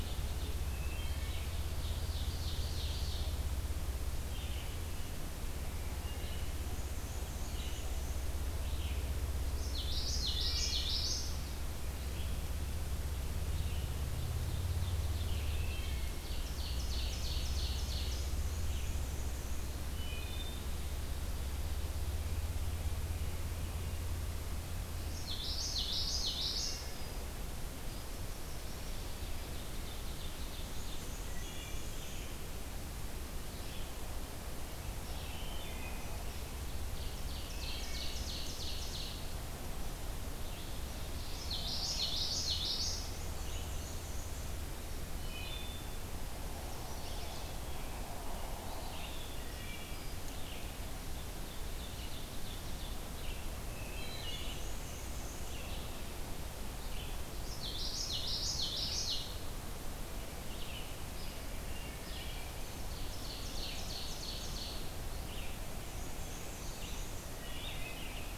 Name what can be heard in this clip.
Ovenbird, Red-eyed Vireo, Wood Thrush, Black-and-white Warbler, Common Yellowthroat, American Robin, Song Sparrow, Chestnut-sided Warbler